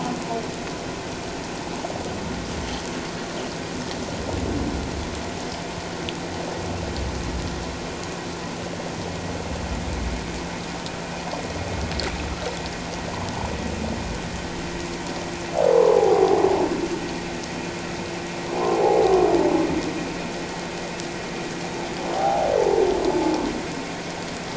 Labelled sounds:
15.7	16.4	humpback whale, 0.78 to 1.2 kHz
18.7	19.0	humpback whale, 0.78 to 0.91 kHz
22.1	22.5	humpback whale, 0.78 to 0.94 kHz

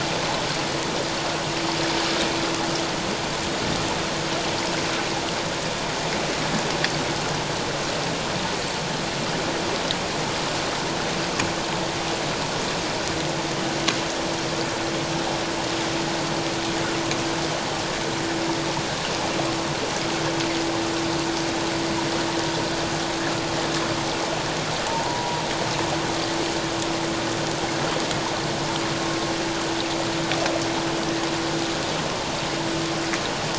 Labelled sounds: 24.9	25.4	humpback whale, 0.81 to 1.0 kHz

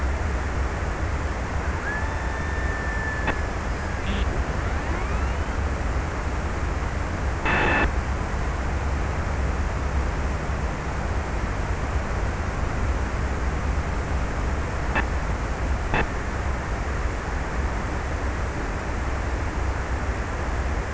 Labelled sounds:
0.4	5.0	killer whale, Bigg's (transient), 1.1 to 2.1 kHz

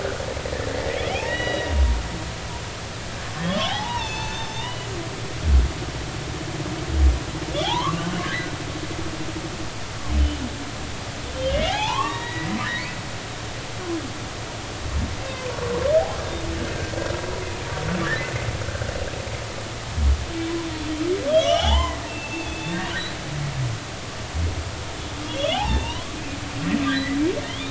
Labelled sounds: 0.7	1.7	humpback whale, 0.80 to 4.0 kHz
3.5	4.9	humpback whale, 0.80 to 6.4 kHz
7.5	8.1	humpback whale, 0.80 to 3.6 kHz
11.5	12.9	humpback whale, 0.80 to 4.0 kHz
21.3	22.9	humpback whale, 0.80 to 5.9 kHz
25.2	26.2	humpback whale, 0.80 to 3.6 kHz
26.8	27.2	humpback whale, 1.5 to 2.0 kHz
27.5	27.7	humpback whale, 3.0 to 3.7 kHz

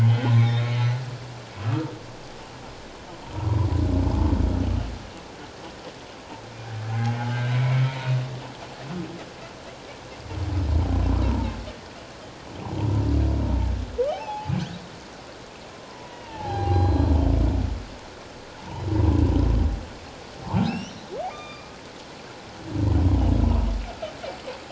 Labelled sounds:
0.0	1.0	humpback whale, 2.9 to 4.1 kHz
6.9	8.1	humpback whale, 0.78 to 2.4 kHz
11.2	11.5	humpback whale, 0.81 to 1.0 kHz
14.1	14.5	humpback whale, 0.78 to 2.8 kHz
15.7	17.1	humpback whale, 0.78 to 4.1 kHz
20.6	21.7	humpback whale, 1.1 to 6.2 kHz

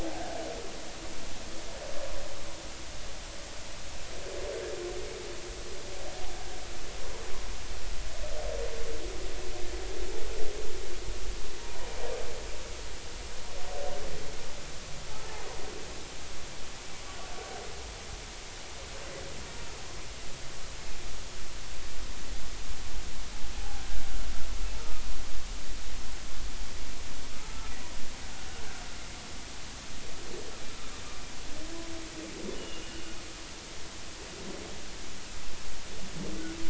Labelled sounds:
0.0	0.3	humpback whale, 0.80 to 0.86 kHz
15.1	15.5	humpback whale, 0.80 to 0.93 kHz
23.6	23.8	humpback whale, 0.80 to 0.90 kHz
27.5	27.7	humpback whale, 1.2 to 1.4 kHz
32.5	32.8	humpback whale, 2.8 to 3.0 kHz

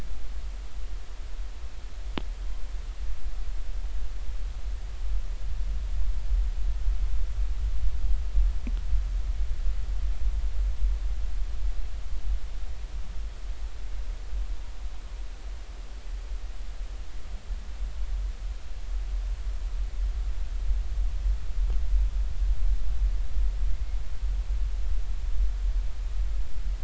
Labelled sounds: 2.4	2.6	humpback whale, 3.1 to 3.2 kHz

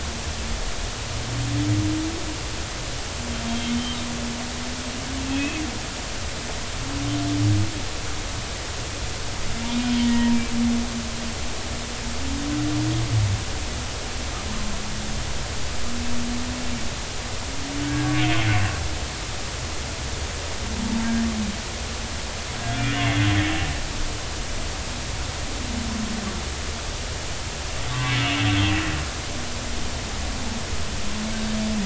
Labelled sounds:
5.2	5.6	humpback whale, 2.5 to 2.7 kHz
9.7	10.4	humpback whale, 0.90 to 2.5 kHz
17.8	18.2	humpback whale, 1.4 to 1.7 kHz
22.7	23.3	humpback whale, 1.4 to 2.2 kHz
27.9	28.5	humpback whale, 0.99 to 3.0 kHz

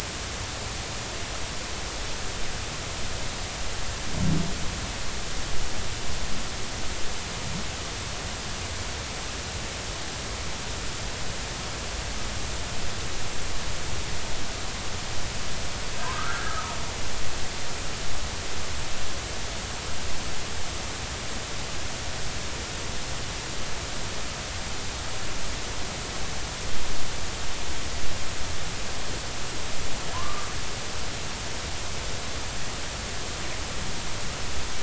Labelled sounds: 16.0	16.8	humpback whale, 0.86 to 1.8 kHz
30.1	30.5	humpback whale, 0.93 to 1.2 kHz

